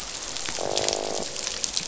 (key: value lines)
label: biophony, croak
recorder: SoundTrap 500